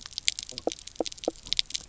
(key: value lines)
label: biophony, knock croak
recorder: SoundTrap 300